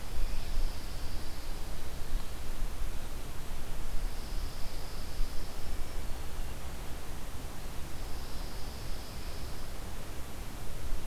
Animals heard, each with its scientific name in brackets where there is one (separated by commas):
Pine Warbler (Setophaga pinus)